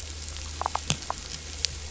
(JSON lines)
{"label": "biophony, damselfish", "recorder": "SoundTrap 500"}